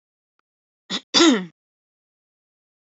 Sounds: Throat clearing